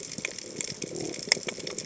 {"label": "biophony", "recorder": "HydroMoth"}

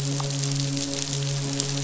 {"label": "biophony, midshipman", "recorder": "SoundTrap 500"}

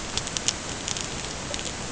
{"label": "ambient", "recorder": "HydroMoth"}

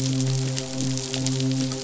{"label": "biophony, midshipman", "recorder": "SoundTrap 500"}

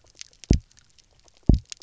{"label": "biophony, double pulse", "recorder": "SoundTrap 300"}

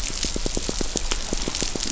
{"label": "biophony, pulse", "recorder": "SoundTrap 500"}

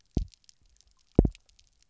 {"label": "biophony, double pulse", "recorder": "SoundTrap 300"}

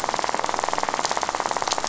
{"label": "biophony, rattle", "recorder": "SoundTrap 500"}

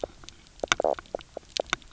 {"label": "biophony, knock croak", "recorder": "SoundTrap 300"}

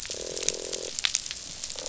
{"label": "biophony, croak", "recorder": "SoundTrap 500"}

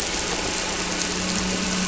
{"label": "anthrophony, boat engine", "recorder": "SoundTrap 300"}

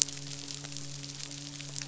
{"label": "biophony, midshipman", "recorder": "SoundTrap 500"}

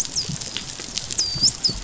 {"label": "biophony, dolphin", "recorder": "SoundTrap 500"}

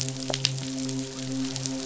{"label": "biophony, midshipman", "recorder": "SoundTrap 500"}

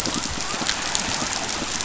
{"label": "biophony", "recorder": "SoundTrap 500"}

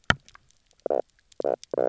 {"label": "biophony, knock croak", "recorder": "SoundTrap 300"}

